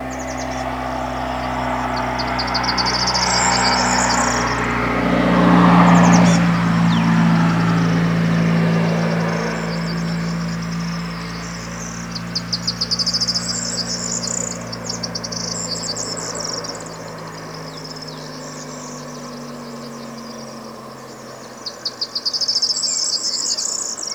Is this outside?
yes